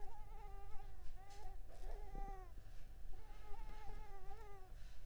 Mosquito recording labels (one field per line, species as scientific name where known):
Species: Culex pipiens complex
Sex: female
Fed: unfed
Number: one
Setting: cup